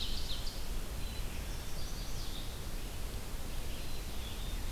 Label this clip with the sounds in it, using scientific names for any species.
Seiurus aurocapilla, Vireo olivaceus, Poecile atricapillus, Setophaga pensylvanica